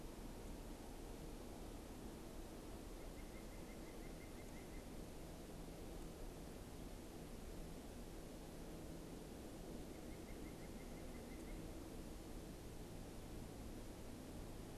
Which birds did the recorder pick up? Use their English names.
White-breasted Nuthatch